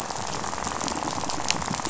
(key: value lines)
label: biophony, rattle
recorder: SoundTrap 500